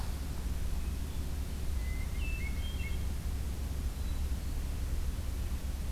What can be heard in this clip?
Hermit Thrush